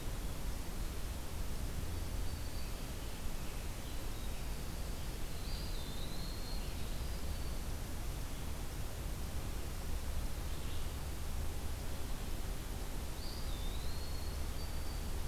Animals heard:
Eastern Wood-Pewee (Contopus virens)
Black-throated Green Warbler (Setophaga virens)
Winter Wren (Troglodytes hiemalis)

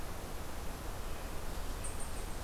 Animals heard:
Eastern Chipmunk (Tamias striatus)

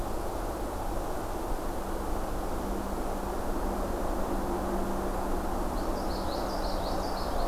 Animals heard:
Common Yellowthroat (Geothlypis trichas)

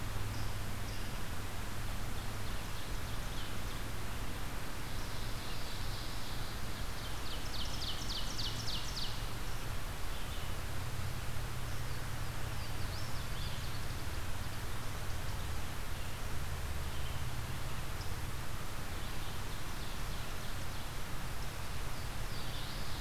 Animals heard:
Red-eyed Vireo (Vireo olivaceus)
Ovenbird (Seiurus aurocapilla)
unknown mammal
Louisiana Waterthrush (Parkesia motacilla)

